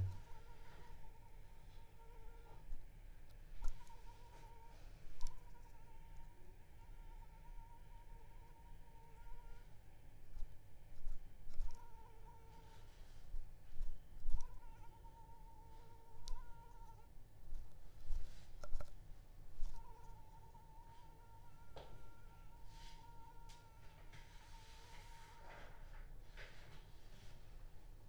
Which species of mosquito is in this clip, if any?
Anopheles arabiensis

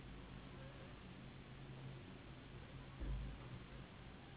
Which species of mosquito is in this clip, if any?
Anopheles gambiae s.s.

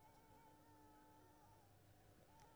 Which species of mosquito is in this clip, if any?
Anopheles squamosus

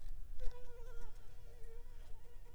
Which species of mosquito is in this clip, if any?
Anopheles gambiae s.l.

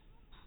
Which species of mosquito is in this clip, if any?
mosquito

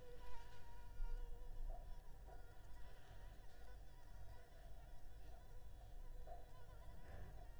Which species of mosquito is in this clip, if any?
Anopheles arabiensis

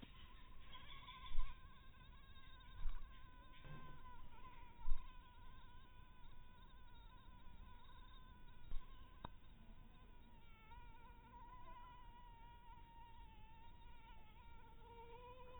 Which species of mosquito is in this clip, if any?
mosquito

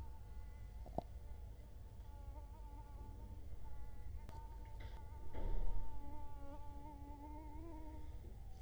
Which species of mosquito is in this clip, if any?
Culex quinquefasciatus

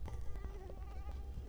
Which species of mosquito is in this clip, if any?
Culex quinquefasciatus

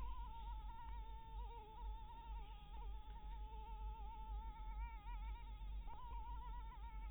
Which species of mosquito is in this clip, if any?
Anopheles maculatus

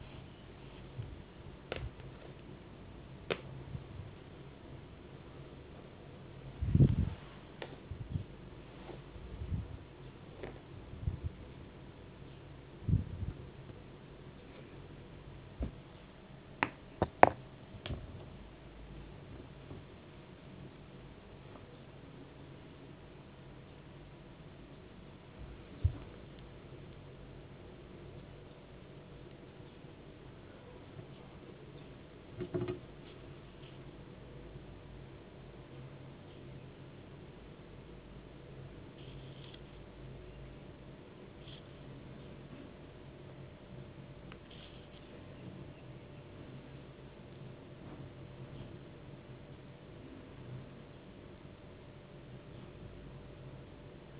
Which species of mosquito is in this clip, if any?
no mosquito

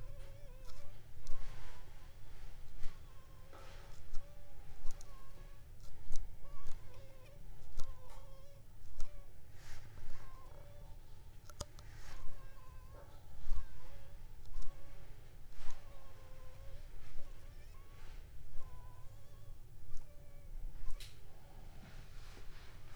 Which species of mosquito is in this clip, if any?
Anopheles funestus s.s.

